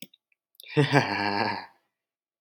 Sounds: Laughter